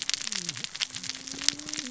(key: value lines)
label: biophony, cascading saw
recorder: SoundTrap 600 or HydroMoth